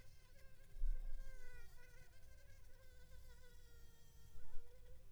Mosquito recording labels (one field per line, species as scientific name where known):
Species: Culex pipiens complex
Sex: female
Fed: unfed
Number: one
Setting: cup